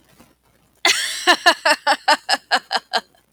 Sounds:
Laughter